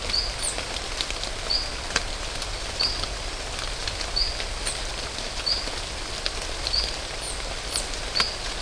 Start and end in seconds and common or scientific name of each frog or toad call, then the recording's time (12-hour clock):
0.0	0.4	marbled tropical bullfrog
1.5	1.7	marbled tropical bullfrog
2.7	3.1	marbled tropical bullfrog
4.1	4.4	marbled tropical bullfrog
5.4	5.8	marbled tropical bullfrog
6.7	7.0	marbled tropical bullfrog
8.2	8.4	marbled tropical bullfrog
6:45pm